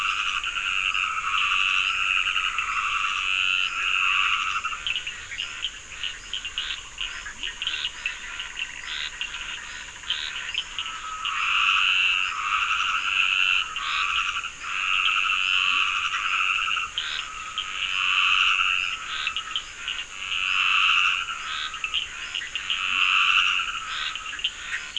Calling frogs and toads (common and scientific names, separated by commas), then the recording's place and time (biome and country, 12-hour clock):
Bischoff's tree frog (Boana bischoffi), Dendropsophus nahdereri, Cochran's lime tree frog (Sphaenorhynchus surdus), yellow cururu toad (Rhinella icterica), Scinax perereca, Leptodactylus latrans
Atlantic Forest, Brazil, 9:15pm